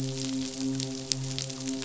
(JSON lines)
{"label": "biophony, midshipman", "recorder": "SoundTrap 500"}